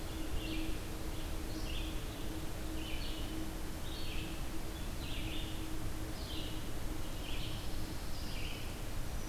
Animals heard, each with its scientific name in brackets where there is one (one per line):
Pine Warbler (Setophaga pinus)
Red-eyed Vireo (Vireo olivaceus)